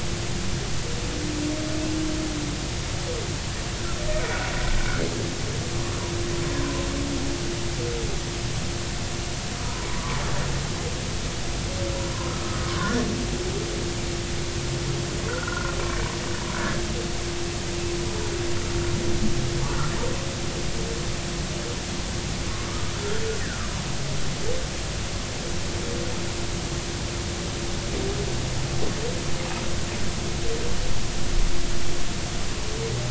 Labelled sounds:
6.5	6.9	humpback whale, 0.96 to 1.1 kHz
12.3	13.1	humpback whale, 0.99 to 2.0 kHz
15.3	15.7	humpback whale, 0.96 to 1.5 kHz
22.5	23.7	humpback whale, 1.0 to 1.9 kHz

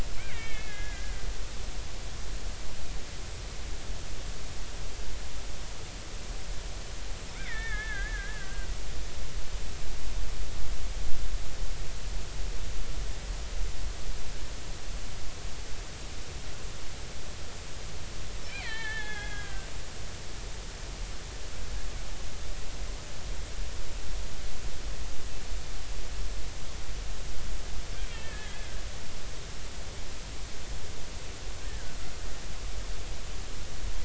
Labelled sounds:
0.2	1.3	killer whale, Bigg's (transient), 1.5 to 3.3 kHz
7.3	8.7	killer whale, Bigg's (transient), 1.4 to 3.6 kHz
18.5	20.6	killer whale, Bigg's (transient), 0.80 to 4.4 kHz
28.1	28.7	killer whale, Bigg's (transient), 1.6 to 3.3 kHz
31.7	31.9	killer whale, Bigg's (transient), 1.4 to 1.9 kHz

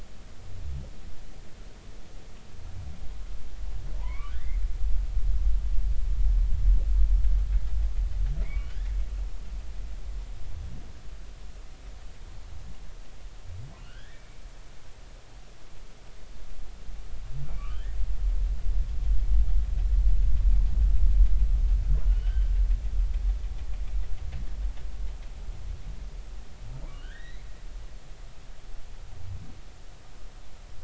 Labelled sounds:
4.0	4.6	humpback whale, 0.80 to 2.5 kHz
8.4	8.9	humpback whale, 1.4 to 2.3 kHz
13.8	14.4	humpback whale, 1.3 to 3.5 kHz
17.5	18.0	humpback whale, 1.1 to 2.5 kHz
22.1	22.4	humpback whale, 1.4 to 1.6 kHz
23.1	23.5	humpback whale, 2.8 to 3.2 kHz
26.9	27.5	humpback whale, 1.4 to 4.1 kHz

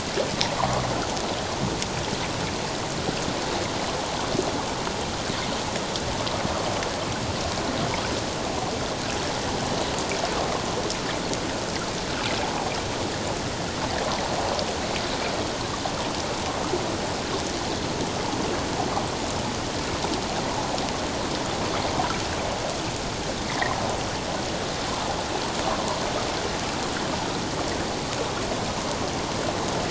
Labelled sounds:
0.6	0.8	water noise, 0.91 to 1.2 kHz
23.4	23.8	water noise, 1.7 to 2.2 kHz
24.9	25.2	water noise, 0.78 to 1.1 kHz

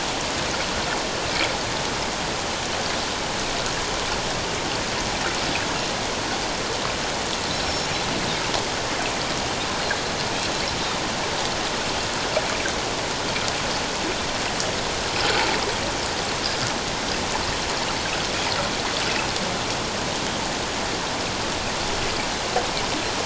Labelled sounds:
7.6	7.9	Pacific white-sided dolphin, 5.3 to 5.5 kHz

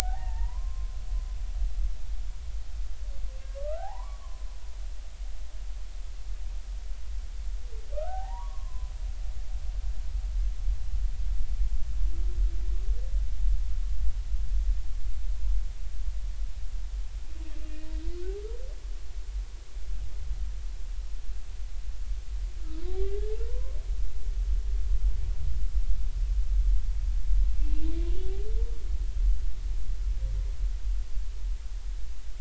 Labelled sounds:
0.1	0.6	humpback whale, 1.7 to 2.1 kHz
1.0	2.0	humpback whale, 0.80 to 1.1 kHz
3.5	4.5	humpback whale, 0.80 to 1.7 kHz
7.9	8.9	humpback whale, 0.80 to 1.6 kHz
22.9	23.8	humpback whale, 0.80 to 2.1 kHz
27.6	27.9	humpback whale, 2.6 to 2.8 kHz

